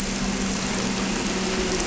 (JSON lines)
{"label": "anthrophony, boat engine", "recorder": "SoundTrap 300"}